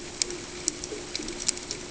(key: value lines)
label: ambient
recorder: HydroMoth